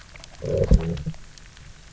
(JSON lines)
{"label": "biophony, low growl", "recorder": "SoundTrap 300"}